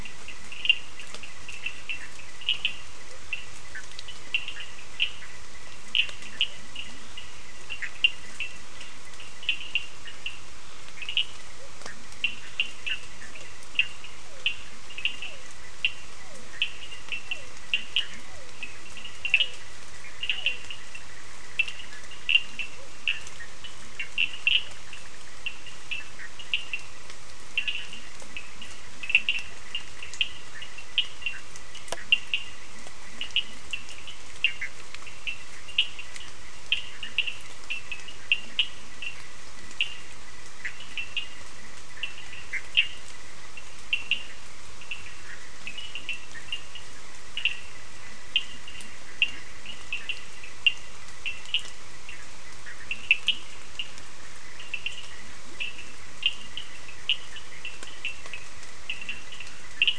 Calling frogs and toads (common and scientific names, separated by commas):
Cochran's lime tree frog (Sphaenorhynchus surdus), Bischoff's tree frog (Boana bischoffi), Leptodactylus latrans, Physalaemus cuvieri